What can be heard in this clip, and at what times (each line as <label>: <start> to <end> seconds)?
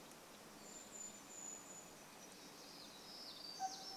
Brown Creeper call: 0 to 2 seconds
truck beep: 2 to 4 seconds
warbler song: 2 to 4 seconds